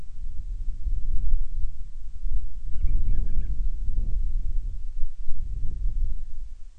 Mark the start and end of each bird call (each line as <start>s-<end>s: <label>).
2.6s-3.6s: Band-rumped Storm-Petrel (Hydrobates castro)